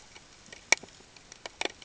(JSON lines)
{"label": "ambient", "recorder": "HydroMoth"}